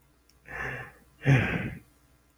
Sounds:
Sigh